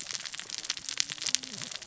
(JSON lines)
{"label": "biophony, cascading saw", "recorder": "SoundTrap 600 or HydroMoth"}